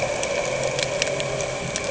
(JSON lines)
{"label": "anthrophony, boat engine", "recorder": "HydroMoth"}